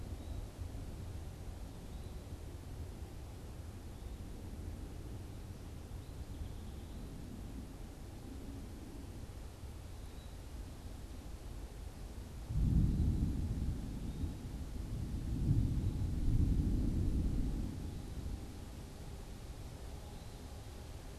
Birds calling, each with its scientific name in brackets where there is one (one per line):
Song Sparrow (Melospiza melodia)
unidentified bird